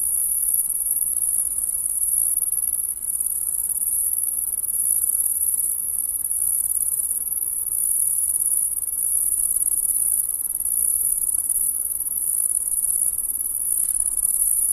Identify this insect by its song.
Tettigonia viridissima, an orthopteran